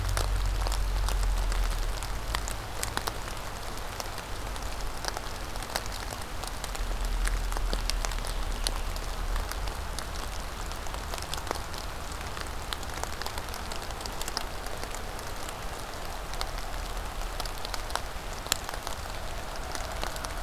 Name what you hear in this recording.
forest ambience